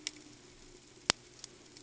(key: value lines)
label: ambient
recorder: HydroMoth